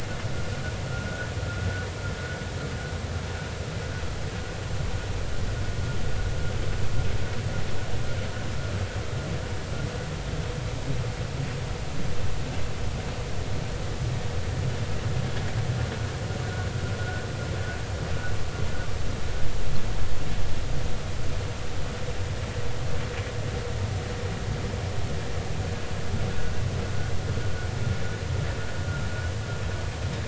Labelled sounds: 17.0	17.2	vessel noise, 1.4 to 1.6 kHz

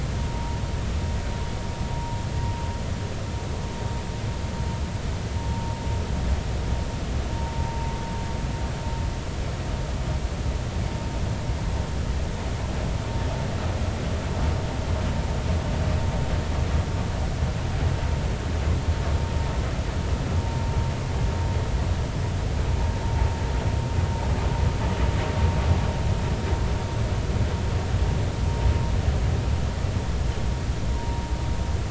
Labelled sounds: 5.5	5.8	vessel noise, 0.86 to 0.96 kHz
7.6	7.9	vessel noise, 0.90 to 0.96 kHz
20.4	20.6	vessel noise, 0.90 to 0.96 kHz
30.9	31.2	vessel noise, 0.90 to 1.1 kHz

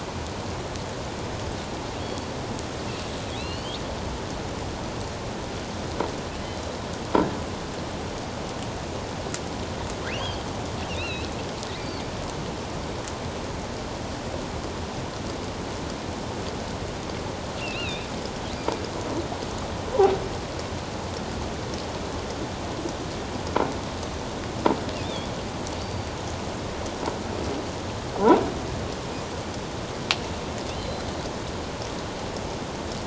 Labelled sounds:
2.0	2.3	killer whale, offshore, 4.2 to 4.5 kHz
3.4	3.8	killer whale, offshore, 2.5 to 4.8 kHz
6.4	6.8	killer whale, offshore, 3.9 to 4.1 kHz
10.2	10.4	killer whale, offshore, 3.0 to 3.4 kHz
10.9	11.3	killer whale, offshore, 2.3 to 4.2 kHz
17.6	18.1	killer whale, offshore, 2.3 to 4.3 kHz
25.0	25.3	killer whale, offshore, 3.2 to 3.7 kHz
25.8	26.1	killer whale, offshore, 4.5 to 4.7 kHz
30.7	31.0	killer whale, offshore, 4.0 to 4.2 kHz

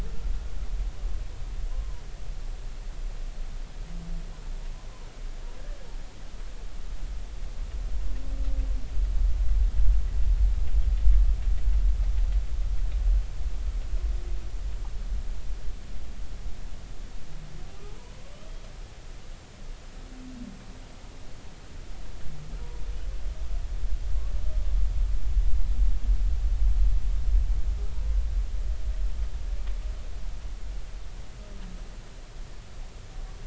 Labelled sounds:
1.7	2.0	humpback whale, 0.93 to 1.1 kHz

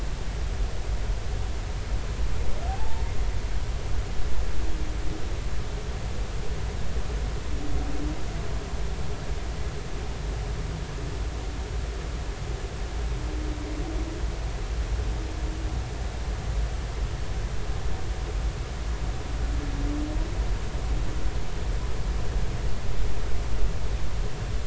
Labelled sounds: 2.7	3.0	humpback whale, 0.80 to 0.96 kHz

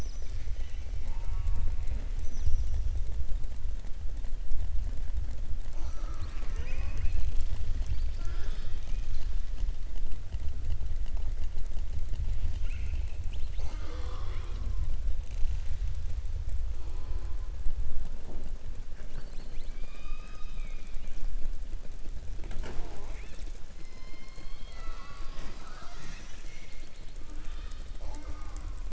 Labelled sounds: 12.4	14.8	killer whale, southern resident, 0.32 to 7.2 kHz

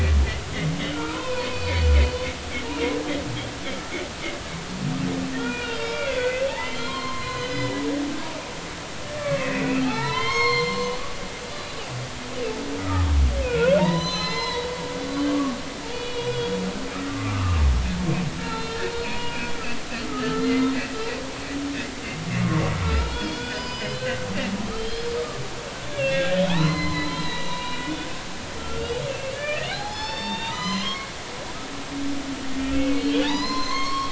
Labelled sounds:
0.9	1.9	humpback whale, 0.86 to 4.6 kHz
2.7	2.9	humpback whale, 2.0 to 2.5 kHz
5.3	7.8	humpback whale, 0.90 to 4.3 kHz
9.2	11.0	humpback whale, 0.80 to 7.5 kHz
12.8	14.7	humpback whale, 0.86 to 6.1 kHz
15.9	17.6	humpback whale, 1.0 to 4.5 kHz
18.4	21.6	humpback whale, 0.93 to 4.4 kHz
22.4	24.3	humpback whale, 0.83 to 5.1 kHz
24.8	25.4	humpback whale, 1.1 to 4.3 kHz
25.9	31.1	humpback whale, 0.80 to 7.2 kHz
32.7	34.1	humpback whale, 0.83 to 6.6 kHz

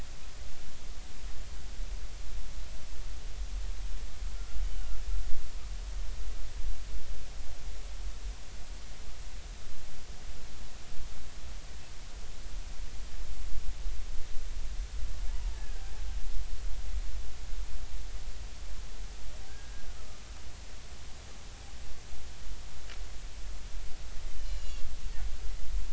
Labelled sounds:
15.5	15.8	killer whale, Bigg's (transient), 1.5 to 1.8 kHz
19.5	20.2	killer whale, Bigg's (transient), 1.2 to 1.7 kHz
24.4	24.8	killer whale, Bigg's (transient), 2.7 to 6.9 kHz

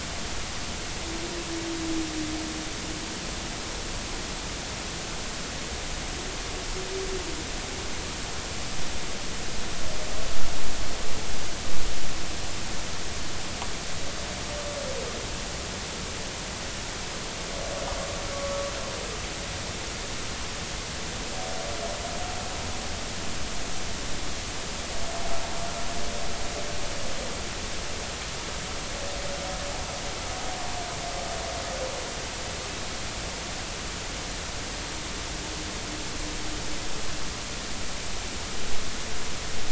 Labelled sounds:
18.3	18.7	humpback whale, 1.0 to 1.2 kHz

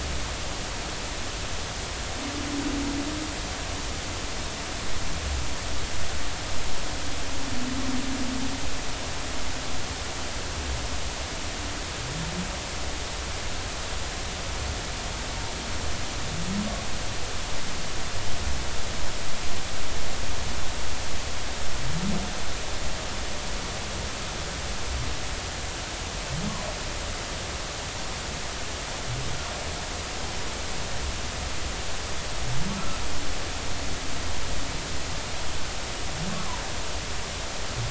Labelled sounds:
32.8	33.0	humpback whale, 1.3 to 1.4 kHz
36.3	36.6	humpback whale, 0.90 to 1.2 kHz

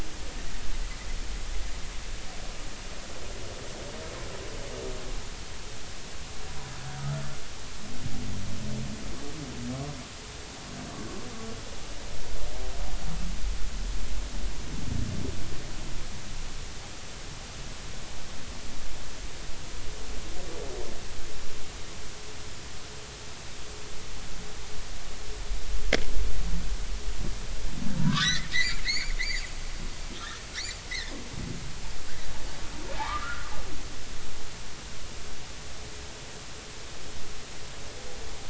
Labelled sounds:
28.0	29.1	humpback whale, 0.90 to 7.1 kHz
33.0	33.5	humpback whale, 0.80 to 1.5 kHz

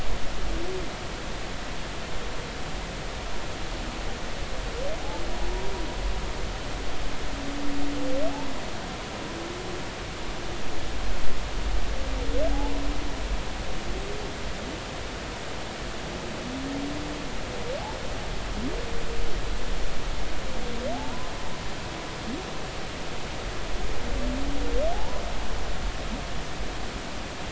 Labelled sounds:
20.9	21.3	humpback whale, 0.80 to 1.1 kHz
24.9	25.2	humpback whale, 0.80 to 1.1 kHz

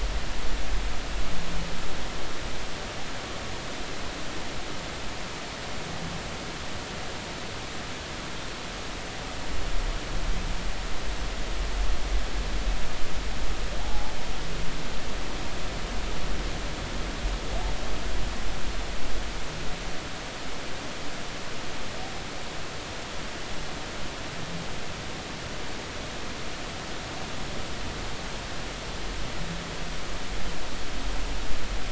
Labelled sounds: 13.8	14.1	humpback whale, 0.80 to 0.99 kHz

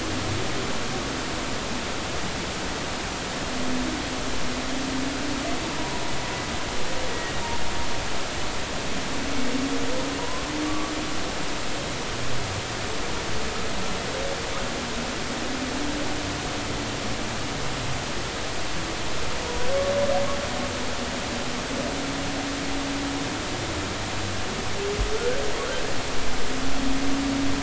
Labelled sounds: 7.1	7.3	humpback whale, 1.8 to 2.0 kHz
10.2	10.9	humpback whale, 0.93 to 1.2 kHz

